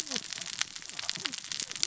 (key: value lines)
label: biophony, cascading saw
recorder: SoundTrap 600 or HydroMoth